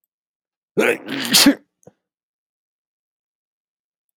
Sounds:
Sneeze